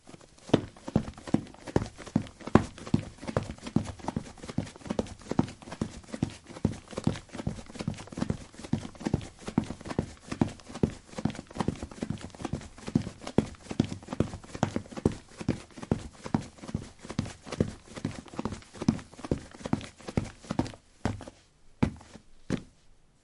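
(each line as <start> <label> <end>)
0.0 Someone is running slowly with shoes on soil at a steady pace. 20.9
20.8 A person slowly walks up stairs with shoes on a firm surface. 23.2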